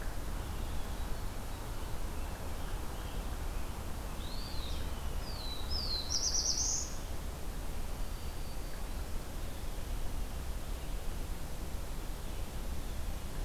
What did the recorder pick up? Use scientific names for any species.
Piranga olivacea, Contopus virens, Setophaga caerulescens, Setophaga virens